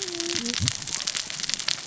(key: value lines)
label: biophony, cascading saw
recorder: SoundTrap 600 or HydroMoth